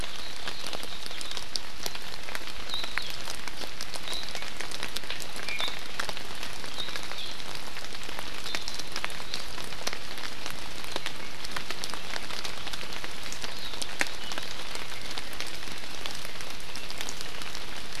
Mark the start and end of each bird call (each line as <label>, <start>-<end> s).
Iiwi (Drepanis coccinea), 5.4-5.7 s